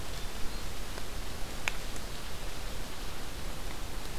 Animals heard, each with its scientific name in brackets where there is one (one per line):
Hermit Thrush (Catharus guttatus)